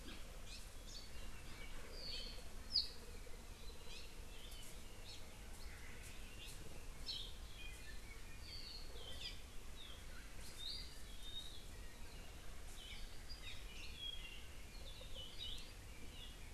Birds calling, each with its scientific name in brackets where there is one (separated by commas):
Apapane (Himatione sanguinea)